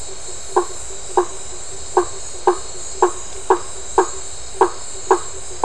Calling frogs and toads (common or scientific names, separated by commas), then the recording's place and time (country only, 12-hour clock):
blacksmith tree frog
Brazil, 8:00pm